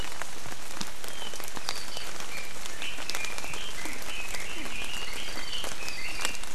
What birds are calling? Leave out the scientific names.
Red-billed Leiothrix, Warbling White-eye